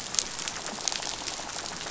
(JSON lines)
{"label": "biophony, rattle", "recorder": "SoundTrap 500"}